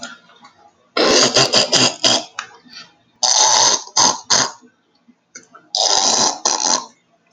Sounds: Throat clearing